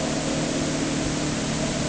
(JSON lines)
{"label": "anthrophony, boat engine", "recorder": "HydroMoth"}